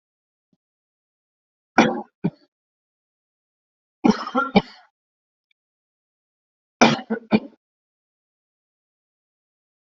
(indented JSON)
{
  "expert_labels": [
    {
      "quality": "ok",
      "cough_type": "dry",
      "dyspnea": false,
      "wheezing": false,
      "stridor": false,
      "choking": false,
      "congestion": false,
      "nothing": true,
      "diagnosis": "upper respiratory tract infection",
      "severity": "severe"
    }
  ],
  "age": 41,
  "gender": "male",
  "respiratory_condition": false,
  "fever_muscle_pain": true,
  "status": "symptomatic"
}